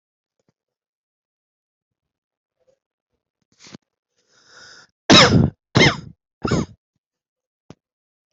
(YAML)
expert_labels:
- quality: good
  cough_type: dry
  dyspnea: false
  wheezing: false
  stridor: false
  choking: false
  congestion: false
  nothing: true
  diagnosis: upper respiratory tract infection
  severity: mild
age: 33
gender: male
respiratory_condition: true
fever_muscle_pain: false
status: healthy